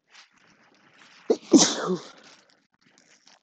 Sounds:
Sneeze